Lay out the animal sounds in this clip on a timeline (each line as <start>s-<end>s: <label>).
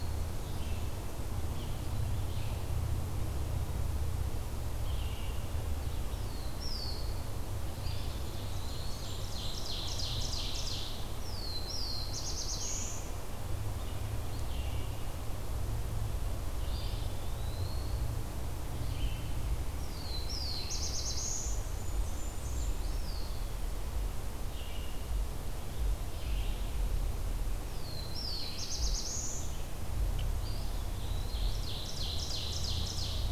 0.0s-1.1s: Blackburnian Warbler (Setophaga fusca)
0.0s-33.3s: Red-eyed Vireo (Vireo olivaceus)
5.9s-7.4s: Black-throated Blue Warbler (Setophaga caerulescens)
7.7s-9.3s: Eastern Wood-Pewee (Contopus virens)
8.0s-9.5s: Blackburnian Warbler (Setophaga fusca)
8.9s-11.2s: Ovenbird (Seiurus aurocapilla)
11.0s-13.2s: Black-throated Blue Warbler (Setophaga caerulescens)
16.7s-18.1s: Eastern Wood-Pewee (Contopus virens)
19.6s-21.6s: Black-throated Blue Warbler (Setophaga caerulescens)
21.4s-22.9s: Blackburnian Warbler (Setophaga fusca)
22.6s-23.3s: Eastern Wood-Pewee (Contopus virens)
27.4s-29.6s: Black-throated Blue Warbler (Setophaga caerulescens)
30.1s-31.6s: Eastern Wood-Pewee (Contopus virens)
30.9s-33.3s: Ovenbird (Seiurus aurocapilla)